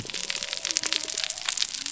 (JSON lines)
{"label": "biophony", "recorder": "SoundTrap 300"}